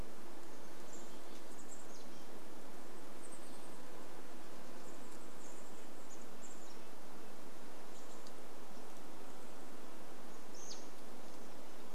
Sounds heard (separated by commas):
insect buzz, American Robin call, Red-breasted Nuthatch song, Chestnut-backed Chickadee call